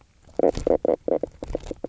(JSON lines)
{"label": "biophony, knock croak", "recorder": "SoundTrap 300"}